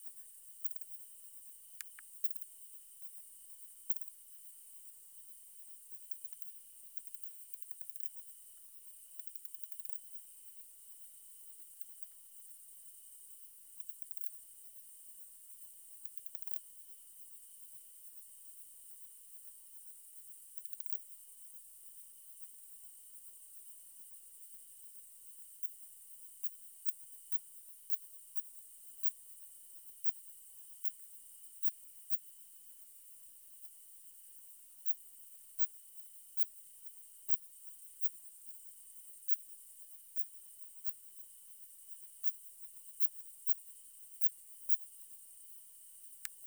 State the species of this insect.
Phaneroptera nana